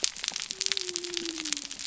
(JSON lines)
{"label": "biophony", "recorder": "SoundTrap 300"}